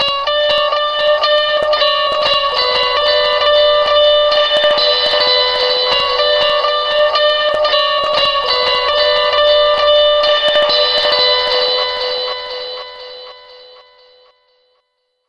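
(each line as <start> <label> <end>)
0.0 An electric guitar solo resonates with a distinct echo effect. 14.0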